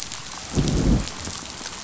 {"label": "biophony, growl", "recorder": "SoundTrap 500"}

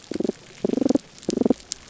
{"label": "biophony, damselfish", "recorder": "SoundTrap 300"}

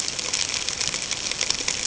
{"label": "ambient", "recorder": "HydroMoth"}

